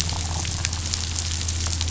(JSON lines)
{"label": "anthrophony, boat engine", "recorder": "SoundTrap 500"}